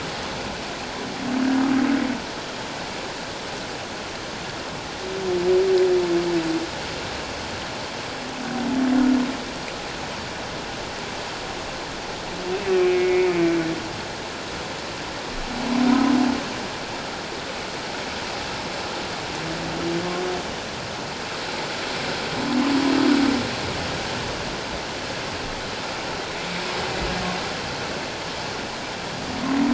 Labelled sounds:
12.7	13.4	humpback whale, 2.0 to 2.7 kHz

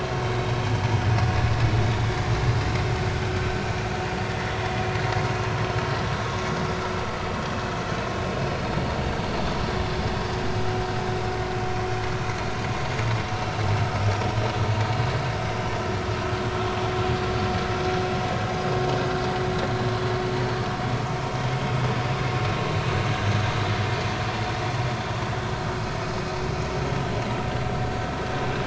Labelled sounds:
4.3	4.6	vessel noise, 1.8 to 2.1 kHz
20.4	20.7	vessel noise, 4.4 to 4.5 kHz

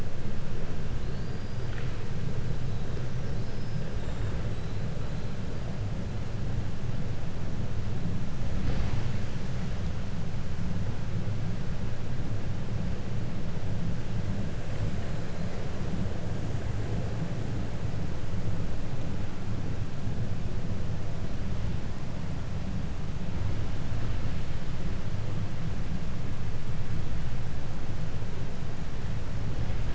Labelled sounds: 0.9	5.4	killer whale, 0.73 to 8.0 kHz
6.0	6.4	killer whale, 3.8 to 4.3 kHz

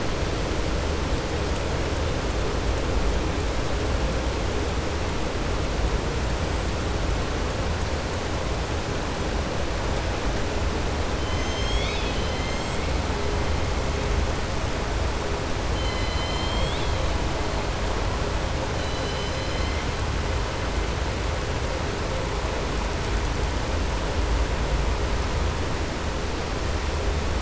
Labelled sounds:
11.2	12.8	killer whale, southern resident, 2.1 to 7.5 kHz
15.7	17.0	killer whale, southern resident, 2.1 to 5.2 kHz
18.7	19.7	killer whale, southern resident, 3.0 to 6.1 kHz

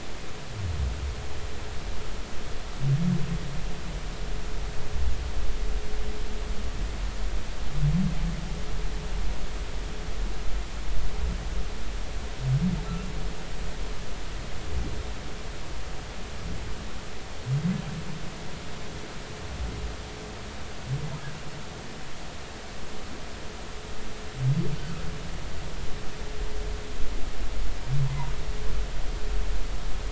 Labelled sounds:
24.8	25.0	humpback whale, 1.2 to 1.6 kHz
28.1	28.3	humpback whale, 0.80 to 1.1 kHz

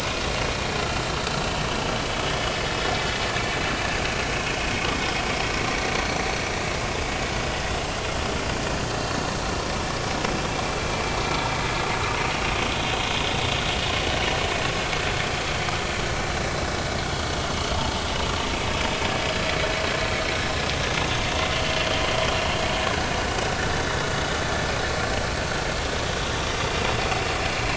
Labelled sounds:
1.3	1.6	vessel noise, 2.9 to 3.1 kHz
2.0	2.2	vessel noise, 3.3 to 3.5 kHz

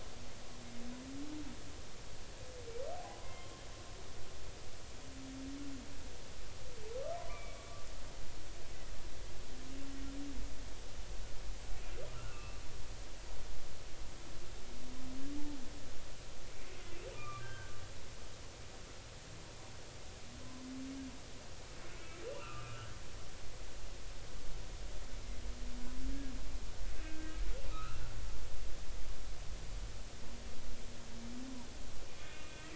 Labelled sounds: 2.9	3.5	humpback whale, 0.80 to 2.2 kHz
7.2	7.9	humpback whale, 0.93 to 2.6 kHz
12.1	12.6	humpback whale, 1.2 to 2.8 kHz
17.1	17.8	humpback whale, 1.1 to 3.2 kHz
22.4	22.9	humpback whale, 1.1 to 2.8 kHz
27.0	27.4	humpback whale, 1.5 to 2.7 kHz
27.7	28.0	humpback whale, 1.2 to 1.5 kHz

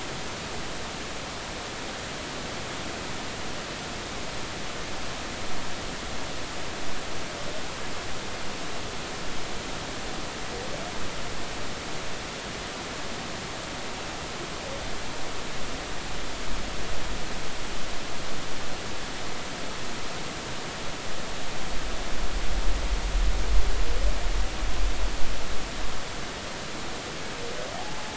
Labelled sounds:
27.7	28.1	humpback whale, 0.80 to 0.90 kHz

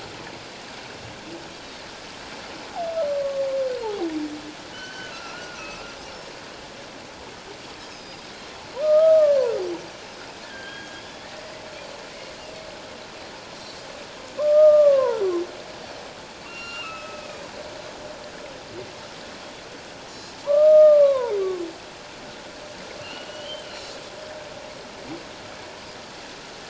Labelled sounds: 3.8	4.1	humpback whale, 0.78 to 0.97 kHz
4.7	6.0	humpback whale, 1.2 to 3.1 kHz
7.9	8.3	Pacific white-sided dolphin, 3.6 to 5.3 kHz
8.8	9.4	humpback whale, 1.1 to 1.3 kHz
10.4	11.3	humpback whale, 1.5 to 3.5 kHz
14.4	15.2	humpback whale, 0.84 to 1.4 kHz
16.4	17.5	humpback whale, 1.1 to 4.2 kHz
20.4	21.4	humpback whale, 0.84 to 1.3 kHz
23.0	23.7	humpback whale, 1.3 to 3.3 kHz

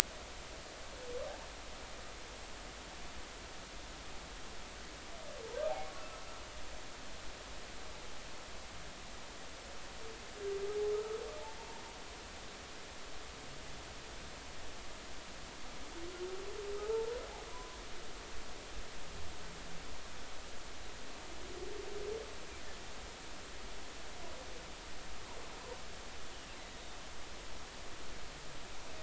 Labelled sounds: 5.7	5.9	humpback whale, 0.80 to 0.93 kHz
10.9	11.2	humpback whale, 1.2 to 1.4 kHz
16.7	17.8	humpback whale, 0.80 to 1.4 kHz

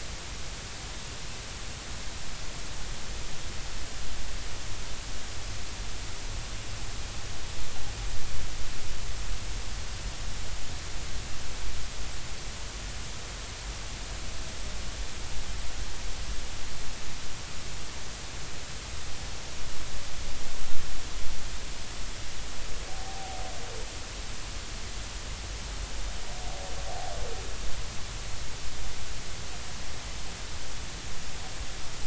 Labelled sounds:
22.9	23.4	humpback whale, 0.80 to 0.83 kHz

